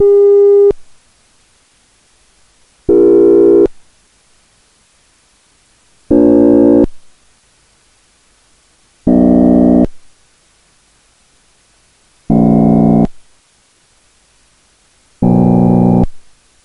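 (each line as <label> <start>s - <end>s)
An electronic beep with a high pitch is played. 0.0s - 0.8s
An electronic buzzing sound is played. 2.9s - 3.7s
An electronic buzzing sound is played. 6.1s - 6.9s
An electronic buzzing sound is played. 9.0s - 9.9s
An electronic buzzing sound is played. 12.3s - 13.2s
An electronic buzzing sound is played. 15.2s - 16.1s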